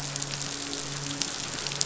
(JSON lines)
{"label": "biophony, midshipman", "recorder": "SoundTrap 500"}